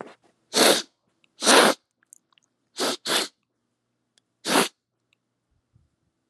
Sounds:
Sniff